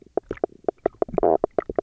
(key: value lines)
label: biophony, knock croak
recorder: SoundTrap 300